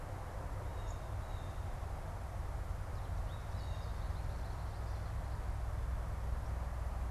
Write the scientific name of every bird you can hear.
Spinus tristis, Cyanocitta cristata